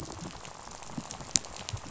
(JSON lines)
{"label": "biophony, rattle", "recorder": "SoundTrap 500"}